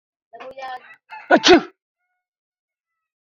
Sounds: Sneeze